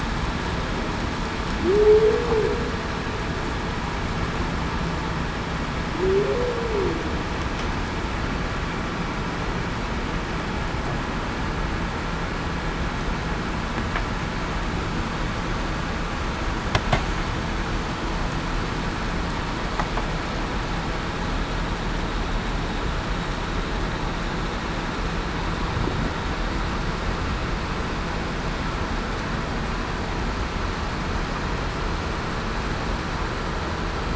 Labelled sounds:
1.6	2.3	humpback whale, 0.30 to 0.52 kHz
6.0	6.5	humpback whale, 0.33 to 0.56 kHz

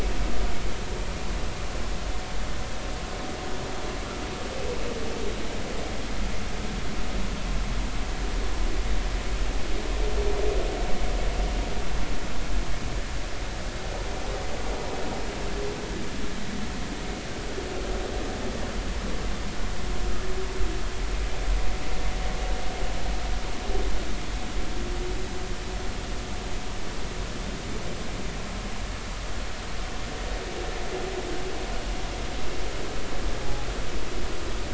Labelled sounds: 33.4	33.7	humpback whale, 0.80 to 0.90 kHz

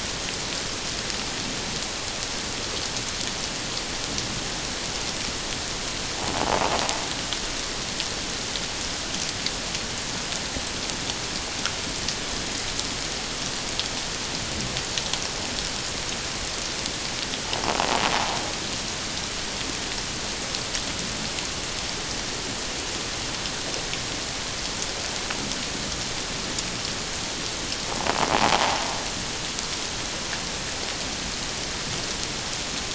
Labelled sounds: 6.4	6.6	invertebrate grinding on or near the hydrophone, 0.78 to 1.0 kHz
28.4	28.8	invertebrate grinding on or near the hydrophone, 0.78 to 1.0 kHz

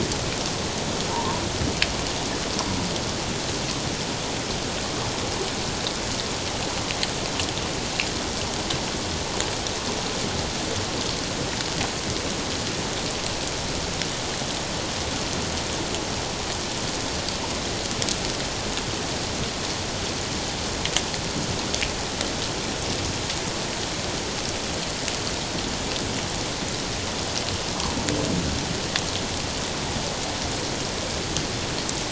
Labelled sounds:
1.1	1.4	humpback whale, 0.88 to 1.2 kHz

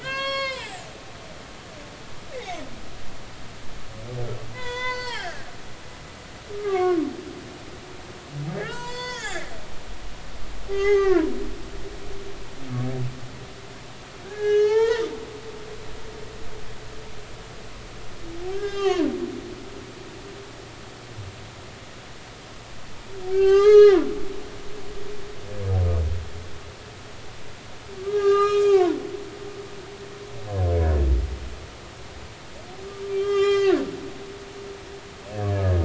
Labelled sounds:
0.0	0.8	humpback whale, 0.80 to 7.7 kHz
2.3	2.6	humpback whale, 1.9 to 2.4 kHz
4.5	5.5	humpback whale, 0.80 to 8.0 kHz
6.5	7.0	humpback whale, 1.0 to 2.3 kHz
8.5	9.5	humpback whale, 0.83 to 7.9 kHz
10.7	11.3	humpback whale, 0.80 to 3.3 kHz
14.2	15.0	humpback whale, 0.80 to 6.5 kHz
18.5	19.1	humpback whale, 0.80 to 7.3 kHz
23.3	24.1	humpback whale, 0.80 to 6.4 kHz
28.0	29.0	humpback whale, 0.80 to 6.6 kHz
30.8	31.0	humpback whale, 1.4 to 1.8 kHz
33.1	33.8	humpback whale, 1.1 to 7.3 kHz

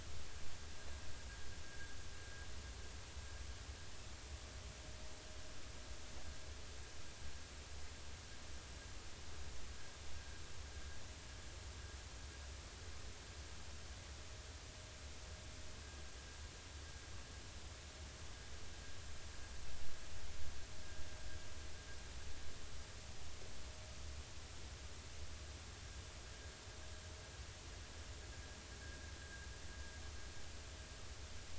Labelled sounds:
29.2	29.5	vessel noise, 1.5 to 1.7 kHz

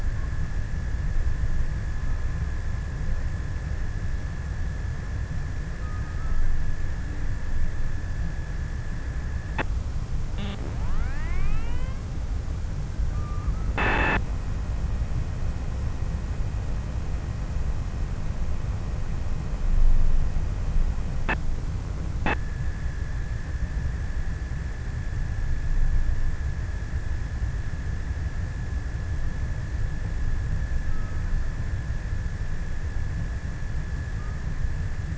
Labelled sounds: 5.2	7.5	killer whale, offshore, 0.85 to 1.9 kHz
30.0	35.1	killer whale, offshore, 0.68 to 1.8 kHz

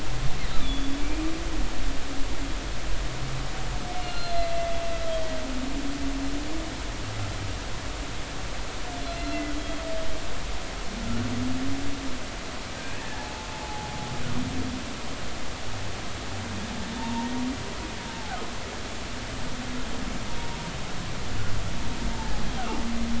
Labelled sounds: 0.6	1.3	humpback whale, 2.3 to 3.6 kHz
4.0	4.7	humpback whale, 1.3 to 4.4 kHz
9.0	9.4	humpback whale, 4.0 to 4.2 kHz
13.0	13.9	humpback whale, 0.80 to 1.9 kHz
17.0	17.3	humpback whale, 0.86 to 1.0 kHz
22.1	22.4	humpback whale, 0.80 to 0.96 kHz

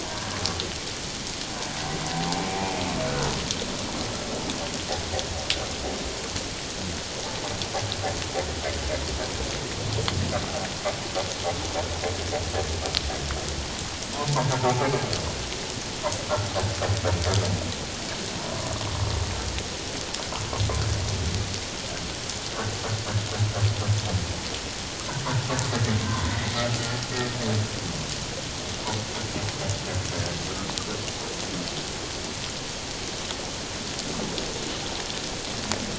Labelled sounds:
0.1	0.4	humpback whale, 1.5 to 1.7 kHz
2.5	2.7	humpback whale, 0.78 to 0.97 kHz
14.6	14.9	humpback whale, 0.78 to 0.94 kHz
18.4	18.7	humpback whale, 0.91 to 1.2 kHz
26.0	26.4	humpback whale, 0.91 to 1.2 kHz

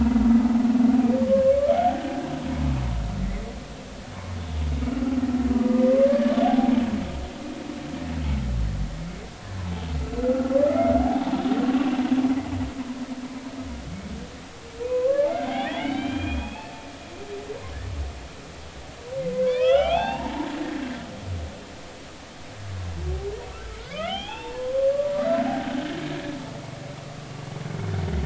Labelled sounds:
1.3	2.1	humpback whale, 1.0 to 1.6 kHz
3.2	3.5	humpback whale, 1.9 to 2.2 kHz
4.9	5.2	humpback whale, 1.3 to 1.5 kHz
5.6	6.7	humpback whale, 0.80 to 1.8 kHz
11.0	11.4	humpback whale, 0.80 to 0.99 kHz
14.9	16.7	humpback whale, 0.80 to 4.0 kHz
19.4	20.5	humpback whale, 0.80 to 4.6 kHz
23.5	24.7	humpback whale, 0.80 to 3.6 kHz
25.5	25.7	humpback whale, 0.80 to 0.86 kHz

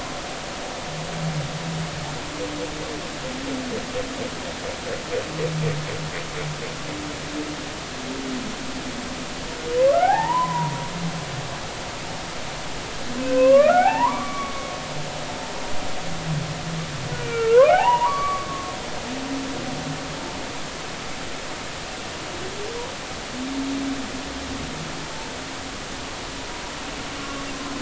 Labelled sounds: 9.9	10.7	humpback whale, 0.80 to 2.0 kHz
13.3	14.7	humpback whale, 0.80 to 2.9 kHz
17.2	18.8	humpback whale, 0.80 to 3.0 kHz

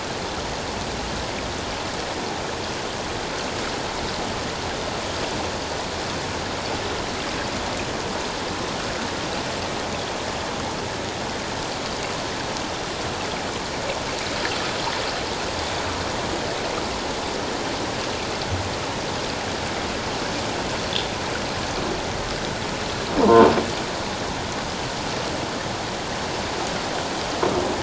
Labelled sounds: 23.2	23.5	croaking sound likely from a nearby submerged object, 0.84 to 1.1 kHz

